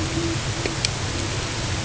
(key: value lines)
label: ambient
recorder: HydroMoth